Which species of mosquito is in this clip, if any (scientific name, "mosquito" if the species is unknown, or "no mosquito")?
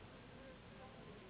Anopheles gambiae s.s.